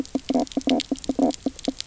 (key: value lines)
label: biophony, knock croak
recorder: SoundTrap 300